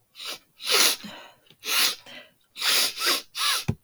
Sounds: Sniff